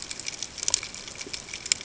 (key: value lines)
label: ambient
recorder: HydroMoth